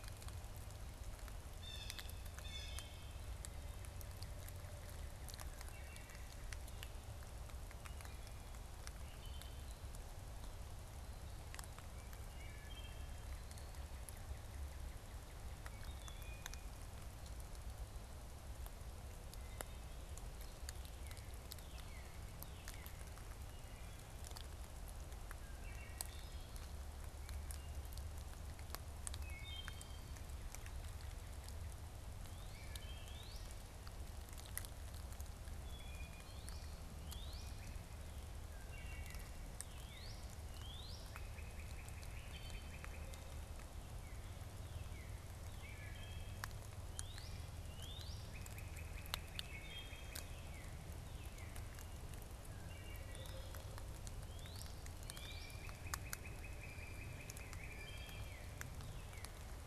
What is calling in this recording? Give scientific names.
Cyanocitta cristata, Cardinalis cardinalis, Hylocichla mustelina